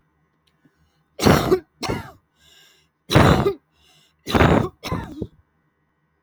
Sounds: Cough